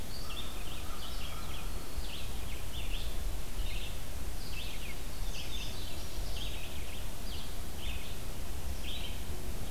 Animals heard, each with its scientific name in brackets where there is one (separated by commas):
Indigo Bunting (Passerina cyanea), American Crow (Corvus brachyrhynchos), Red-eyed Vireo (Vireo olivaceus)